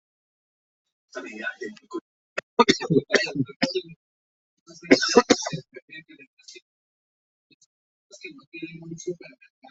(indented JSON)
{
  "expert_labels": [
    {
      "quality": "poor",
      "cough_type": "dry",
      "dyspnea": false,
      "wheezing": false,
      "stridor": false,
      "choking": false,
      "congestion": false,
      "nothing": true,
      "diagnosis": "COVID-19",
      "severity": "mild"
    }
  ],
  "age": 26,
  "gender": "male",
  "respiratory_condition": false,
  "fever_muscle_pain": false,
  "status": "symptomatic"
}